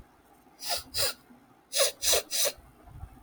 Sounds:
Sniff